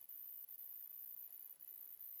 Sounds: Laughter